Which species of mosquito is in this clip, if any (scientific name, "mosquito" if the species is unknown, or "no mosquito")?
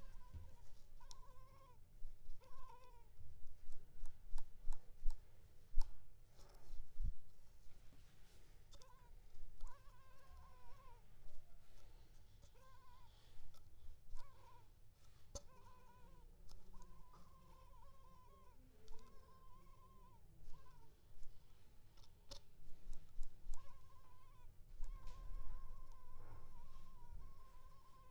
Culex pipiens complex